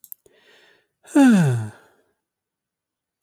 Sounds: Sigh